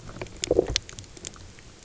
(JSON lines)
{"label": "biophony, low growl", "recorder": "SoundTrap 300"}